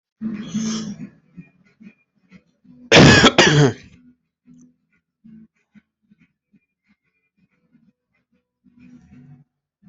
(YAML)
expert_labels:
- quality: good
  cough_type: wet
  dyspnea: false
  wheezing: false
  stridor: false
  choking: false
  congestion: false
  nothing: true
  diagnosis: healthy cough
  severity: pseudocough/healthy cough
age: 42
gender: male
respiratory_condition: false
fever_muscle_pain: false
status: healthy